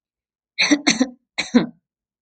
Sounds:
Cough